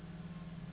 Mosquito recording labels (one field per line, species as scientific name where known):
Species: Anopheles gambiae s.s.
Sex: female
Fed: unfed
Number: one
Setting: insect culture